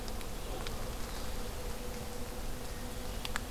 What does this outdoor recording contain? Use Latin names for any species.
forest ambience